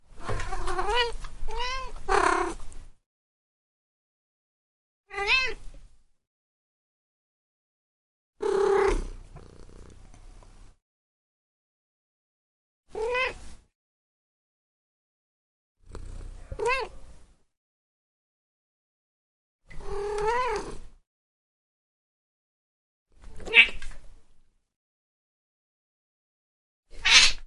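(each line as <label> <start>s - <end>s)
A cat is trilling and purring. 0.0s - 3.1s
A cat meows shortly. 5.0s - 6.2s
A cat is purring. 8.4s - 10.8s
A cat meows shortly. 12.8s - 13.8s
A cat is purring quietly. 15.8s - 16.5s
A cat meows briefly. 16.5s - 17.3s
A cat trills for a long time. 19.6s - 21.1s
A cat meows shortly and sharply. 23.1s - 24.6s
A cat lets out a short yell. 26.8s - 27.5s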